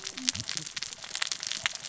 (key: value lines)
label: biophony, cascading saw
recorder: SoundTrap 600 or HydroMoth